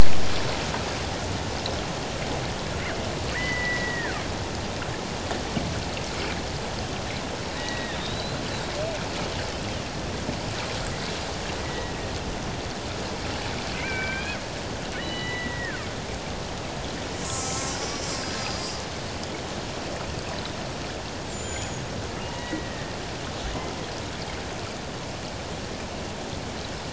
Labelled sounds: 3.3	4.2	killer whale, Bigg's (transient), 1.4 to 2.1 kHz
7.6	8.4	killer whale, Bigg's (transient), 1.7 to 4.2 kHz
11.6	12.0	killer whale, Bigg's (transient), 1.8 to 2.2 kHz
13.8	15.9	killer whale, Bigg's (transient), 1.1 to 4.0 kHz
17.2	18.1	killer whale, Bigg's (transient), 1.2 to 7.2 kHz
18.4	18.8	killer whale, Bigg's (transient), 4.8 to 5.0 kHz
20.2	20.7	killer whale, Bigg's (transient), 7.7 to 8.0 kHz
21.2	21.9	killer whale, Bigg's (transient), 6.4 to 7.7 kHz
22.2	22.9	killer whale, Bigg's (transient), 1.7 to 2.9 kHz

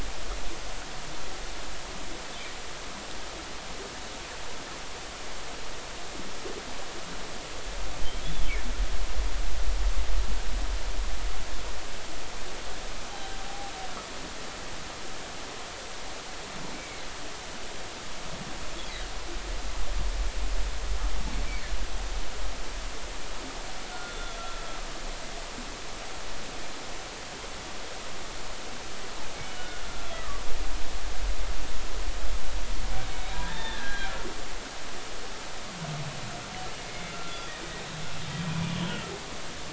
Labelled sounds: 8.2	8.5	humpback whale, 3.0 to 3.6 kHz
13.5	13.7	humpback whale, 0.80 to 0.86 kHz
16.7	17.0	humpback whale, 2.1 to 2.3 kHz
23.9	24.7	humpback whale, 1.3 to 3.6 kHz
29.4	30.4	humpback whale, 1.1 to 3.1 kHz
33.3	34.1	humpback whale, 0.86 to 4.1 kHz
36.8	37.5	humpback whale, 1.3 to 3.5 kHz

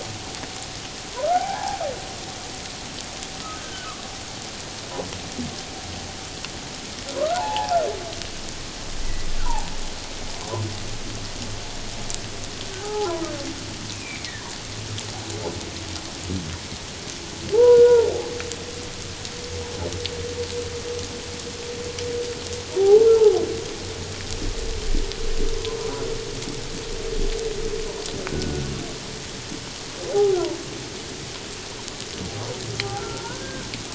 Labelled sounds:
1.3	1.8	humpback whale, 0.78 to 1.8 kHz
3.4	3.9	humpback whale, 1.2 to 3.2 kHz
7.1	7.8	humpback whale, 0.78 to 1.5 kHz
9.0	9.7	humpback whale, 0.78 to 2.0 kHz
12.8	13.1	humpback whale, 0.78 to 1.4 kHz
13.9	14.3	humpback whale, 2.1 to 2.7 kHz
17.5	18.1	humpback whale, 0.78 to 1.5 kHz
22.8	23.4	humpback whale, 0.78 to 1.4 kHz
28.3	28.6	humpback whale, 1.4 to 1.5 kHz
30.1	30.4	humpback whale, 0.78 to 0.88 kHz
33.0	33.7	humpback whale, 1.3 to 1.7 kHz

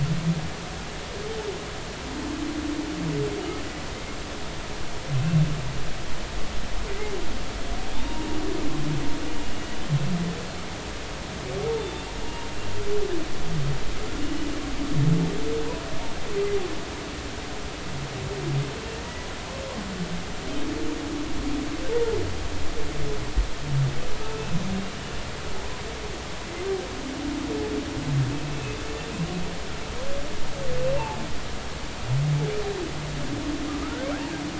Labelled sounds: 5.2	5.4	humpback whale, 2.6 to 2.8 kHz
6.9	8.4	humpback whale, 0.86 to 2.2 kHz
11.8	12.5	humpback whale, 0.86 to 3.6 kHz
14.2	14.5	humpback whale, 2.8 to 3.0 kHz
33.8	34.1	humpback whale, 1.2 to 1.6 kHz

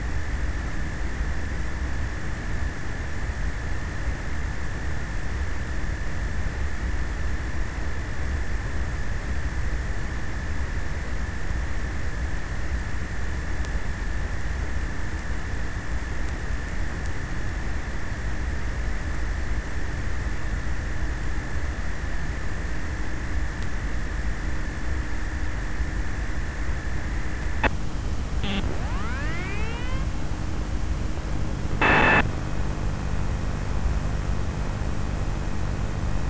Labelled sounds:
27.6	32.8	abiotic sound, 0 to 8.0 kHz

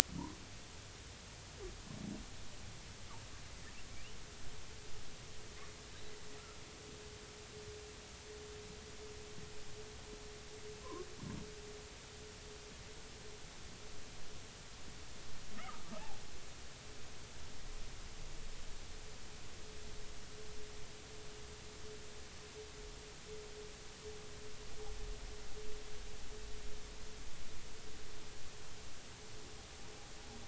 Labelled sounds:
10.8	11.1	humpback whale, 0.93 to 1.2 kHz
15.5	15.8	humpback whale, 1.1 to 1.5 kHz

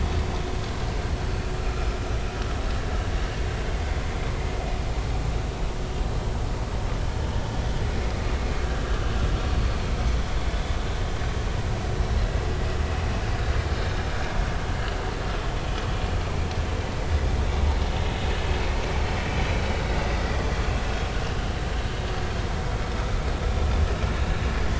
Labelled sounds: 1.3	1.9	vessel noise, 1.2 to 4.5 kHz
20.2	20.4	vessel noise, 1.9 to 2.0 kHz

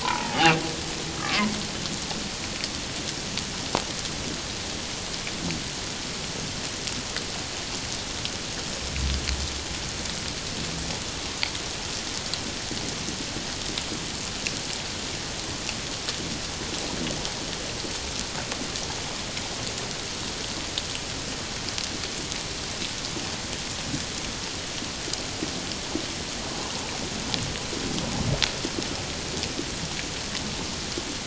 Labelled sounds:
0.0	0.6	humpback whale, 0.84 to 3.0 kHz
1.2	1.5	humpback whale, 0.94 to 1.4 kHz

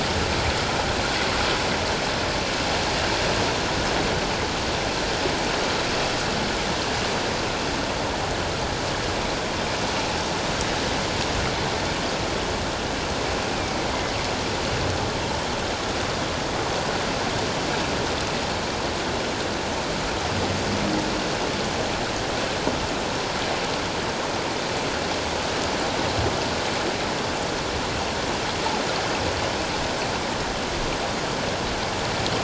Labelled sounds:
13.5	13.8	killer whale, northern resident, A clan, AA subclan, 2.2 to 2.6 kHz

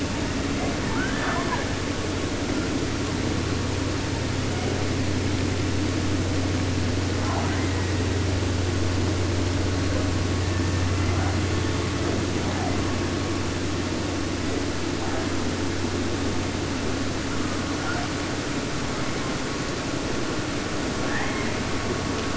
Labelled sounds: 0.8	1.9	killer whale, 0.50 to 3.9 kHz
3.9	4.9	killer whale, southern resident, J pod, call S01, 0.41 to 3.1 kHz
7.1	8.2	killer whale, 0.42 to 2.7 kHz
10.4	12.3	killer whale, southern resident, J pod, call S01, 0.34 to 2.3 kHz
12.3	12.9	killer whale, 0.38 to 2.1 kHz
13.7	14.6	killer whale, southern resident, J pod, call S01, 0.37 to 2.3 kHz
17.2	18.2	killer whale, 0.39 to 2.1 kHz
21.0	21.7	killer whale, 0.50 to 3.7 kHz

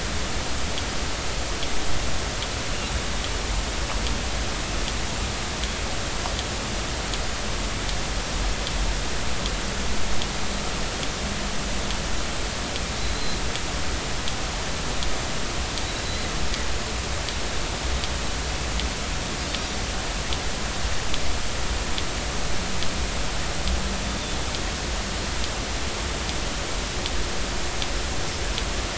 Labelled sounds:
13.0	13.4	Pacific white-sided dolphin, 3.9 to 4.2 kHz

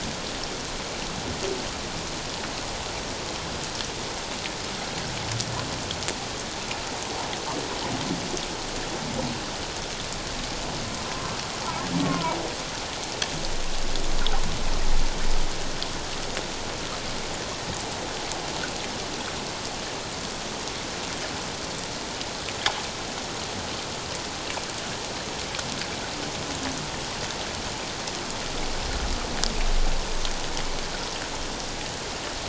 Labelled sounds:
12.0	12.4	humpback whale, 0.88 to 1.5 kHz

